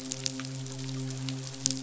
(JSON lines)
{"label": "biophony, midshipman", "recorder": "SoundTrap 500"}